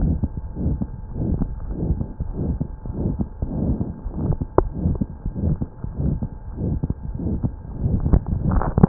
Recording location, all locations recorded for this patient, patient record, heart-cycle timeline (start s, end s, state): aortic valve (AV)
aortic valve (AV)+pulmonary valve (PV)+tricuspid valve (TV)+mitral valve (MV)
#Age: Child
#Sex: Male
#Height: 111.0 cm
#Weight: 18.5 kg
#Pregnancy status: False
#Murmur: Present
#Murmur locations: aortic valve (AV)+mitral valve (MV)+pulmonary valve (PV)+tricuspid valve (TV)
#Most audible location: pulmonary valve (PV)
#Systolic murmur timing: Mid-systolic
#Systolic murmur shape: Diamond
#Systolic murmur grading: III/VI or higher
#Systolic murmur pitch: High
#Systolic murmur quality: Harsh
#Diastolic murmur timing: nan
#Diastolic murmur shape: nan
#Diastolic murmur grading: nan
#Diastolic murmur pitch: nan
#Diastolic murmur quality: nan
#Outcome: Abnormal
#Campaign: 2015 screening campaign
0.00	4.01	unannotated
4.01	4.13	S1
4.13	4.36	systole
4.36	4.48	S2
4.48	4.63	diastole
4.63	4.71	S1
4.71	4.98	systole
4.98	5.08	S2
5.08	5.22	diastole
5.22	5.34	S1
5.34	5.59	systole
5.59	5.67	S2
5.67	5.83	diastole
5.83	5.92	S1
5.92	6.19	systole
6.19	6.31	S2
6.31	6.47	diastole
6.47	6.60	S1
6.60	6.76	systole
6.76	6.88	S2
6.88	7.03	diastole
7.03	7.17	S1
7.17	7.40	systole
7.40	7.53	S2
7.53	7.77	diastole
7.77	7.89	S1
7.89	8.88	unannotated